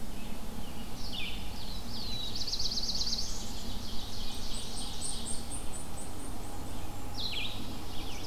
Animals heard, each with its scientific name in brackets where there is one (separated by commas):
Blackburnian Warbler (Setophaga fusca), Ovenbird (Seiurus aurocapilla), Black-throated Blue Warbler (Setophaga caerulescens), Blackpoll Warbler (Setophaga striata), Red-eyed Vireo (Vireo olivaceus)